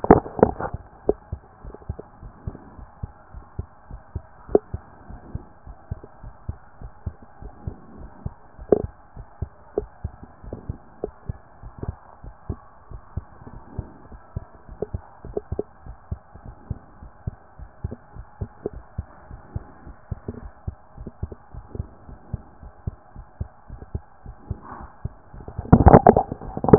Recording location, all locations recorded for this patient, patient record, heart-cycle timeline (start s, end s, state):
pulmonary valve (PV)
aortic valve (AV)+pulmonary valve (PV)+tricuspid valve (TV)
#Age: Child
#Sex: Female
#Height: 128.0 cm
#Weight: 35.2 kg
#Pregnancy status: False
#Murmur: Absent
#Murmur locations: nan
#Most audible location: nan
#Systolic murmur timing: nan
#Systolic murmur shape: nan
#Systolic murmur grading: nan
#Systolic murmur pitch: nan
#Systolic murmur quality: nan
#Diastolic murmur timing: nan
#Diastolic murmur shape: nan
#Diastolic murmur grading: nan
#Diastolic murmur pitch: nan
#Diastolic murmur quality: nan
#Outcome: Normal
#Campaign: 2014 screening campaign
0.00	0.24	S1
0.24	0.40	systole
0.40	0.70	S2
0.70	1.06	diastole
1.06	1.16	S1
1.16	1.30	systole
1.30	1.40	S2
1.40	1.66	diastole
1.66	1.74	S1
1.74	1.88	systole
1.88	2.00	S2
2.00	2.24	diastole
2.24	2.32	S1
2.32	2.46	systole
2.46	2.58	S2
2.58	2.80	diastole
2.80	2.86	S1
2.86	3.02	systole
3.02	3.12	S2
3.12	3.36	diastole
3.36	3.44	S1
3.44	3.58	systole
3.58	3.68	S2
3.68	3.92	diastole
3.92	4.00	S1
4.00	4.14	systole
4.14	4.24	S2
4.24	4.50	diastole
4.50	4.62	S1
4.62	4.72	systole
4.72	4.82	S2
4.82	5.10	diastole
5.10	5.18	S1
5.18	5.32	systole
5.32	5.44	S2
5.44	5.68	diastole
5.68	5.74	S1
5.74	5.90	systole
5.90	6.00	S2
6.00	6.24	diastole
6.24	6.32	S1
6.32	6.48	systole
6.48	6.58	S2
6.58	6.84	diastole
6.84	6.90	S1
6.90	7.06	systole
7.06	7.16	S2
7.16	7.44	diastole
7.44	7.52	S1
7.52	7.66	systole
7.66	7.78	S2
7.78	7.98	diastole
7.98	8.08	S1
8.08	8.24	systole
8.24	8.34	S2
8.34	8.60	diastole
8.60	8.62	S1
8.62	8.70	systole
8.70	8.92	S2
8.92	9.18	diastole
9.18	9.24	S1
9.24	9.40	systole
9.40	9.50	S2
9.50	9.78	diastole
9.78	9.88	S1
9.88	10.04	systole
10.04	10.18	S2
10.18	10.46	diastole
10.46	10.60	S1
10.60	10.68	systole
10.68	10.78	S2
10.78	11.04	diastole
11.04	11.12	S1
11.12	11.28	systole
11.28	11.38	S2
11.38	11.64	diastole
11.64	11.70	S1
11.70	11.84	systole
11.84	11.98	S2
11.98	12.26	diastole
12.26	12.32	S1
12.32	12.48	systole
12.48	12.60	S2
12.60	12.92	diastole
12.92	13.00	S1
13.00	13.16	systole
13.16	13.26	S2
13.26	13.54	diastole
13.54	13.60	S1
13.60	13.76	systole
13.76	13.90	S2
13.90	14.14	diastole
14.14	14.18	S1
14.18	14.34	systole
14.34	14.46	S2
14.46	14.72	diastole
14.72	14.76	S1
14.76	14.92	systole
14.92	15.02	S2
15.02	15.26	diastole
15.26	15.34	S1
15.34	15.50	systole
15.50	15.64	S2
15.64	15.88	diastole
15.88	15.96	S1
15.96	16.10	systole
16.10	16.20	S2
16.20	16.46	diastole
16.46	16.54	S1
16.54	16.68	systole
16.68	16.80	S2
16.80	17.04	diastole
17.04	17.10	S1
17.10	17.26	systole
17.26	17.36	S2
17.36	17.62	diastole
17.62	17.68	S1
17.68	17.82	systole
17.82	17.98	S2
17.98	18.18	diastole
18.18	18.26	S1
18.26	18.40	systole
18.40	18.50	S2
18.50	18.74	diastole
18.74	18.82	S1
18.82	18.96	systole
18.96	19.08	S2
19.08	19.32	diastole
19.32	19.40	S1
19.40	19.54	systole
19.54	19.64	S2
19.64	19.88	diastole
19.88	19.94	S1
19.94	20.10	systole
20.10	20.20	S2
20.20	20.42	diastole
20.42	20.52	S1
20.52	20.66	systole
20.66	20.76	S2
20.76	21.00	diastole
21.00	21.08	S1
21.08	21.22	systole
21.22	21.36	S2
21.36	21.58	diastole
21.58	21.64	S1
21.64	21.76	systole
21.76	21.88	S2
21.88	22.10	diastole
22.10	22.16	S1
22.16	22.32	systole
22.32	22.42	S2
22.42	22.64	diastole
22.64	22.70	S1
22.70	22.88	systole
22.88	22.96	S2
22.96	23.18	diastole
23.18	23.24	S1
23.24	23.38	systole
23.38	23.50	S2
23.50	23.72	diastole
23.72	23.80	S1
23.80	23.92	systole
23.92	24.02	S2
24.02	24.28	diastole
24.28	24.36	S1
24.36	24.48	systole
24.48	24.62	S2
24.62	24.82	diastole
24.82	24.88	S1
24.88	25.04	systole
25.04	25.12	S2
25.12	25.36	diastole
25.36	25.44	S1
25.44	25.56	systole
25.56	25.68	S2
25.68	26.24	diastole
26.24	26.38	S1
26.38	26.58	systole
26.58	26.78	S2